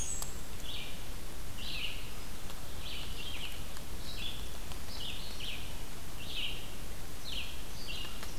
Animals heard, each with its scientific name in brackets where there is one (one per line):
Blackburnian Warbler (Setophaga fusca)
Red-eyed Vireo (Vireo olivaceus)